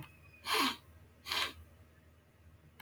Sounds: Sniff